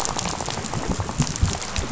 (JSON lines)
{"label": "biophony, rattle", "recorder": "SoundTrap 500"}